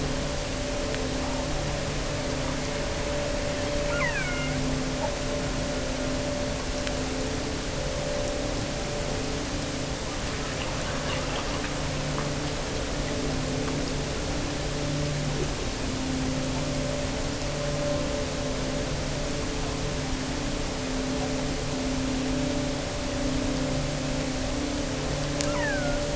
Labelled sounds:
3.8	4.6	killer whale, offshore, 0.80 to 3.3 kHz
25.4	26.1	killer whale, offshore, 0.68 to 3.1 kHz

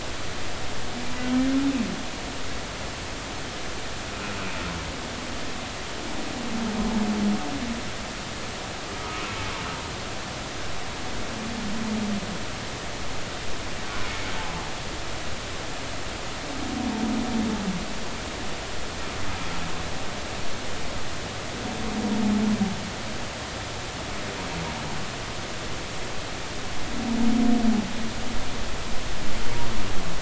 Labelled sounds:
9.0	9.3	humpback whale, 1.2 to 1.3 kHz

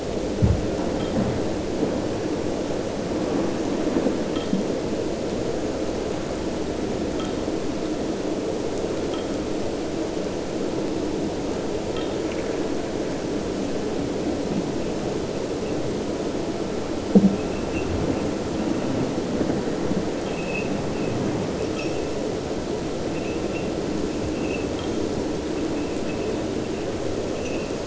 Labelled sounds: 11.8	12.6	abiotic sound, 1.3 to 4.0 kHz
20.1	20.7	abiotic sound, 2.5 to 3.3 kHz

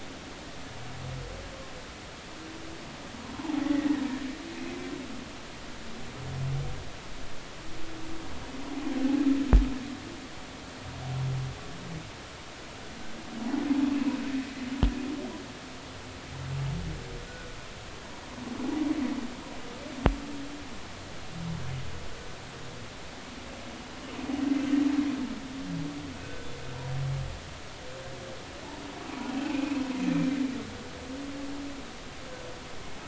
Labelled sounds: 3.6	4.0	humpback whale, 1.7 to 2.0 kHz
4.3	4.6	humpback whale, 0.80 to 1.1 kHz
26.2	26.5	humpback whale, 1.5 to 1.6 kHz
29.4	29.8	humpback whale, 2.4 to 2.7 kHz

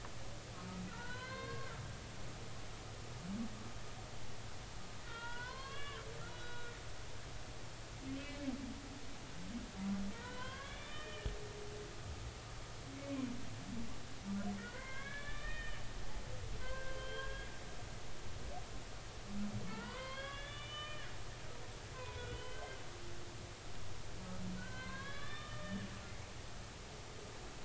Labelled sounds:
0.9	1.7	humpback whale, 0.90 to 4.4 kHz
5.0	6.0	humpback whale, 0.90 to 4.4 kHz
6.3	6.7	humpback whale, 1.4 to 4.0 kHz
8.1	8.4	humpback whale, 2.4 to 2.7 kHz
10.1	11.3	humpback whale, 0.96 to 5.5 kHz
13.0	13.3	humpback whale, 0.96 to 1.2 kHz
14.6	17.5	humpback whale, 0.96 to 3.7 kHz
19.7	21.1	humpback whale, 0.83 to 4.4 kHz
21.9	22.8	humpback whale, 0.93 to 3.5 kHz
24.6	25.9	humpback whale, 0.99 to 3.8 kHz

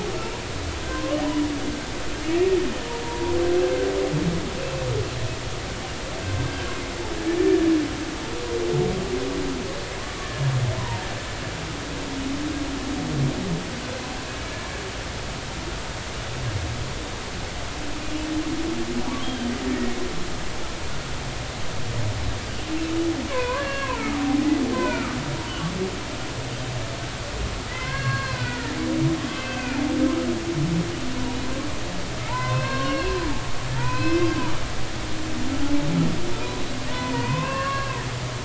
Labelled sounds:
0.9	1.2	humpback whale, 0.99 to 1.2 kHz
3.0	3.3	humpback whale, 0.90 to 1.0 kHz
7.4	7.7	humpback whale, 1.7 to 1.8 kHz
10.8	11.1	humpback whale, 0.86 to 1.1 kHz
19.7	20.5	humpback whale, 1.8 to 3.3 kHz
23.3	25.2	humpback whale, 0.80 to 2.9 kHz
27.7	28.8	humpback whale, 0.96 to 4.4 kHz
29.2	29.8	humpback whale, 1.3 to 2.7 kHz
32.3	34.3	humpback whale, 0.83 to 5.6 kHz
36.3	38.0	humpback whale, 0.90 to 2.9 kHz

